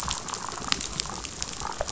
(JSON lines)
{"label": "biophony, damselfish", "recorder": "SoundTrap 500"}